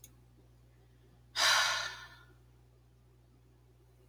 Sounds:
Sigh